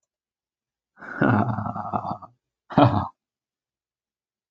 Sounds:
Laughter